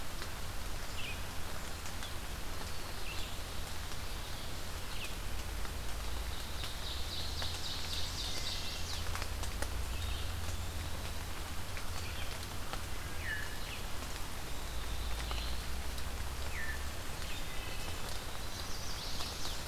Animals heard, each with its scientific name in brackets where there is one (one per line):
Veery (Catharus fuscescens)
Red-eyed Vireo (Vireo olivaceus)
Black-throated Blue Warbler (Setophaga caerulescens)
Chestnut-sided Warbler (Setophaga pensylvanica)
Eastern Wood-Pewee (Contopus virens)
Ovenbird (Seiurus aurocapilla)
Wood Thrush (Hylocichla mustelina)